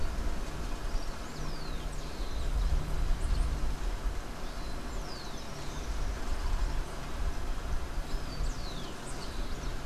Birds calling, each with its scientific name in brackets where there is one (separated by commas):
Rufous-collared Sparrow (Zonotrichia capensis)